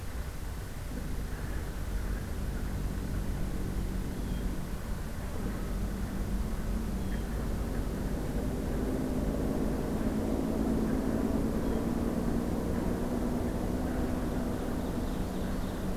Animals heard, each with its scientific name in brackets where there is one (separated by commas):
Ovenbird (Seiurus aurocapilla), Blue Jay (Cyanocitta cristata)